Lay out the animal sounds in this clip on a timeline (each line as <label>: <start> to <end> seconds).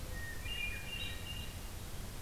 Hermit Thrush (Catharus guttatus): 0.0 to 1.7 seconds